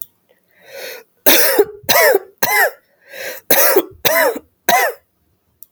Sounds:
Cough